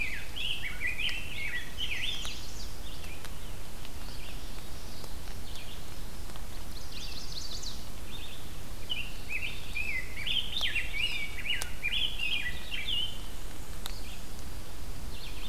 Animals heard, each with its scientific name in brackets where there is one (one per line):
Black-and-white Warbler (Mniotilta varia)
Red-eyed Vireo (Vireo olivaceus)
Rose-breasted Grosbeak (Pheucticus ludovicianus)
Chestnut-sided Warbler (Setophaga pensylvanica)